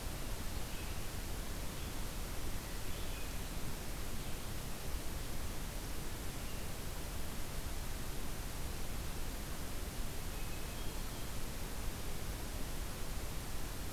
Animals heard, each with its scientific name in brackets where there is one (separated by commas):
Hermit Thrush (Catharus guttatus), Red-eyed Vireo (Vireo olivaceus)